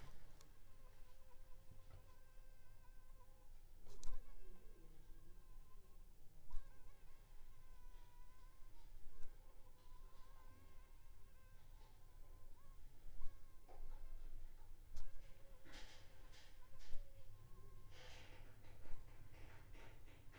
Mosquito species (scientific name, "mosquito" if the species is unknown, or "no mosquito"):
Anopheles funestus s.s.